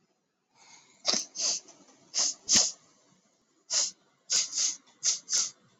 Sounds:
Sneeze